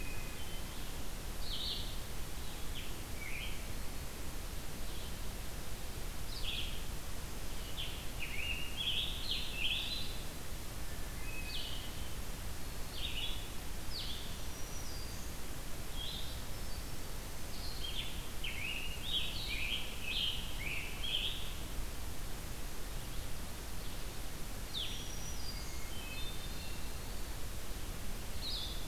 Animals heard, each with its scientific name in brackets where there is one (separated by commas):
Red-eyed Vireo (Vireo olivaceus), Hermit Thrush (Catharus guttatus), Scarlet Tanager (Piranga olivacea), Blue-headed Vireo (Vireo solitarius), Black-throated Green Warbler (Setophaga virens)